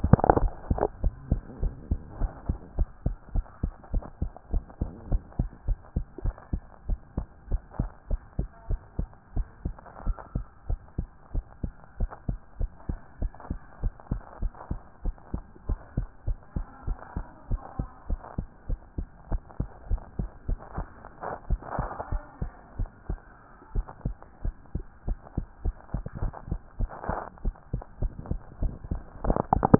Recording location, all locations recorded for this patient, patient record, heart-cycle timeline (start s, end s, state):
tricuspid valve (TV)
aortic valve (AV)+pulmonary valve (PV)+tricuspid valve (TV)+mitral valve (MV)
#Age: Child
#Sex: Female
#Height: 114.0 cm
#Weight: 16.5 kg
#Pregnancy status: False
#Murmur: Absent
#Murmur locations: nan
#Most audible location: nan
#Systolic murmur timing: nan
#Systolic murmur shape: nan
#Systolic murmur grading: nan
#Systolic murmur pitch: nan
#Systolic murmur quality: nan
#Diastolic murmur timing: nan
#Diastolic murmur shape: nan
#Diastolic murmur grading: nan
#Diastolic murmur pitch: nan
#Diastolic murmur quality: nan
#Outcome: Abnormal
#Campaign: 2014 screening campaign
0.16	0.36	diastole
0.36	0.52	S1
0.52	0.68	systole
0.68	0.82	S2
0.82	1.02	diastole
1.02	1.16	S1
1.16	1.30	systole
1.30	1.42	S2
1.42	1.60	diastole
1.60	1.76	S1
1.76	1.90	systole
1.90	2.02	S2
2.02	2.18	diastole
2.18	2.32	S1
2.32	2.46	systole
2.46	2.60	S2
2.60	2.80	diastole
2.80	2.92	S1
2.92	3.02	systole
3.02	3.16	S2
3.16	3.34	diastole
3.34	3.46	S1
3.46	3.60	systole
3.60	3.74	S2
3.74	3.92	diastole
3.92	4.04	S1
4.04	4.18	systole
4.18	4.32	S2
4.32	4.50	diastole
4.50	4.64	S1
4.64	4.80	systole
4.80	4.92	S2
4.92	5.08	diastole
5.08	5.22	S1
5.22	5.36	systole
5.36	5.50	S2
5.50	5.66	diastole
5.66	5.78	S1
5.78	5.94	systole
5.94	6.08	S2
6.08	6.24	diastole
6.24	6.36	S1
6.36	6.50	systole
6.50	6.64	S2
6.64	6.86	diastole
6.86	7.00	S1
7.00	7.16	systole
7.16	7.28	S2
7.28	7.48	diastole
7.48	7.62	S1
7.62	7.78	systole
7.78	7.92	S2
7.92	8.12	diastole
8.12	8.24	S1
8.24	8.38	systole
8.38	8.50	S2
8.50	8.68	diastole
8.68	8.80	S1
8.80	8.98	systole
8.98	9.10	S2
9.10	9.32	diastole
9.32	9.46	S1
9.46	9.64	systole
9.64	9.76	S2
9.76	10.00	diastole
10.00	10.16	S1
10.16	10.34	systole
10.34	10.46	S2
10.46	10.66	diastole
10.66	10.80	S1
10.80	10.98	systole
10.98	11.10	S2
11.10	11.32	diastole
11.32	11.44	S1
11.44	11.62	systole
11.62	11.74	S2
11.74	11.98	diastole
11.98	12.10	S1
12.10	12.28	systole
12.28	12.40	S2
12.40	12.58	diastole
12.58	12.70	S1
12.70	12.88	systole
12.88	13.00	S2
13.00	13.20	diastole
13.20	13.32	S1
13.32	13.50	systole
13.50	13.60	S2
13.60	13.80	diastole
13.80	13.94	S1
13.94	14.10	systole
14.10	14.22	S2
14.22	14.40	diastole
14.40	14.52	S1
14.52	14.70	systole
14.70	14.82	S2
14.82	15.04	diastole
15.04	15.16	S1
15.16	15.32	systole
15.32	15.44	S2
15.44	15.66	diastole
15.66	15.80	S1
15.80	15.96	systole
15.96	16.10	S2
16.10	16.28	diastole
16.28	16.38	S1
16.38	16.56	systole
16.56	16.68	S2
16.68	16.86	diastole
16.86	16.98	S1
16.98	17.16	systole
17.16	17.28	S2
17.28	17.50	diastole
17.50	17.62	S1
17.62	17.78	systole
17.78	17.88	S2
17.88	18.10	diastole
18.10	18.20	S1
18.20	18.38	systole
18.38	18.48	S2
18.48	18.70	diastole
18.70	18.80	S1
18.80	18.98	systole
18.98	19.10	S2
19.10	19.30	diastole
19.30	19.42	S1
19.42	19.56	systole
19.56	19.68	S2
19.68	19.88	diastole
19.88	20.02	S1
20.02	20.18	systole
20.18	20.30	S2
20.30	20.50	diastole
20.50	20.60	S1
20.60	20.76	systole
20.76	20.88	S2
20.88	21.12	diastole
21.12	21.24	S1
21.24	21.46	systole
21.46	21.60	S2
21.60	21.78	diastole
21.78	21.92	S1
21.92	22.10	systole
22.10	22.22	S2
22.22	22.42	diastole
22.42	22.54	S1
22.54	22.76	systole
22.76	22.90	S2
22.90	23.08	diastole
23.08	23.20	S1
23.20	23.40	systole
23.40	23.50	S2
23.50	23.72	diastole
23.72	23.86	S1
23.86	24.04	systole
24.04	24.18	S2
24.18	24.42	diastole
24.42	24.56	S1
24.56	24.74	systole
24.74	24.86	S2
24.86	25.06	diastole
25.06	25.20	S1
25.20	25.36	systole
25.36	25.46	S2
25.46	25.64	diastole
25.64	25.76	S1
25.76	25.94	systole
25.94	26.04	S2
26.04	26.20	diastole
26.20	26.34	S1
26.34	26.50	systole
26.50	26.60	S2
26.60	26.78	diastole
26.78	26.92	S1
26.92	27.08	systole
27.08	27.22	S2
27.22	27.42	diastole
27.42	27.56	S1
27.56	27.72	systole
27.72	27.84	S2
27.84	28.00	diastole
28.00	28.14	S1
28.14	28.30	systole
28.30	28.42	S2
28.42	28.60	diastole
28.60	28.74	S1
28.74	28.92	systole
28.92	29.04	S2
29.04	29.24	diastole
29.24	29.40	S1
29.40	29.66	systole
29.66	29.79	S2